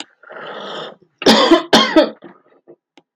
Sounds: Cough